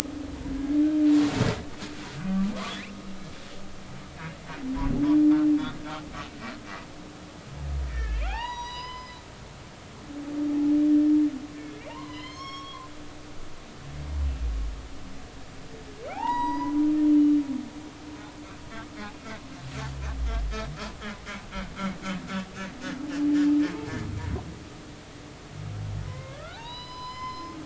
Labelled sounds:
7.9	9.2	humpback whale, 0.80 to 6.0 kHz
11.9	12.9	humpback whale, 0.83 to 6.6 kHz
16.0	16.8	humpback whale, 0.80 to 7.7 kHz
18.7	18.9	humpback whale, 1.1 to 1.2 kHz
26.1	27.6	humpback whale, 0.80 to 5.2 kHz

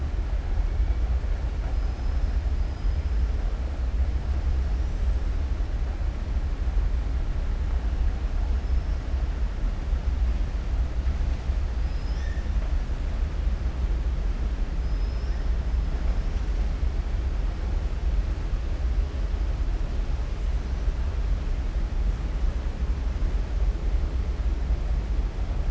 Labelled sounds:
14.8	15.4	killer whale, southern resident, 4.8 to 5.8 kHz

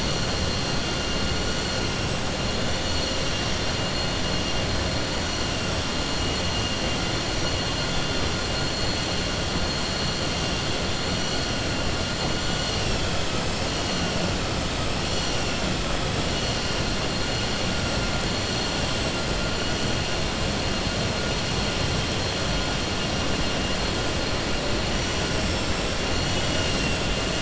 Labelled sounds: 26.2	27.0	vessel noise, 2.1 to 6.3 kHz

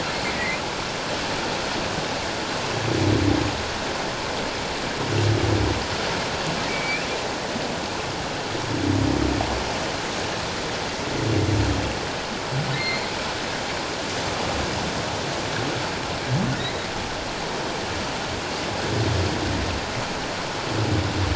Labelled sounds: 0.3	0.6	humpback whale, 1.9 to 2.2 kHz
6.7	7.0	humpback whale, 2.2 to 2.5 kHz
12.7	13.1	humpback whale, 2.0 to 4.3 kHz

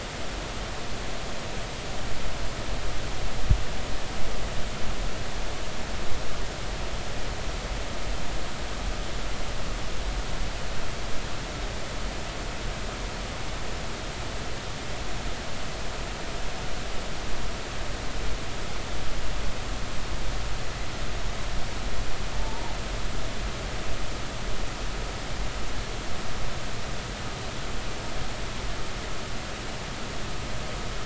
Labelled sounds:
22.3	22.7	humpback whale, 0.80 to 0.99 kHz

